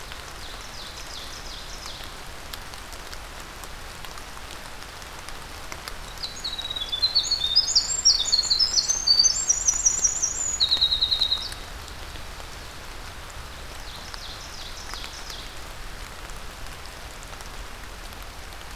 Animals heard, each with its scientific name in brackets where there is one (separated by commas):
Winter Wren (Troglodytes hiemalis), Ovenbird (Seiurus aurocapilla)